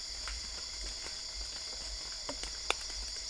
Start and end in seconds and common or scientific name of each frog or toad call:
none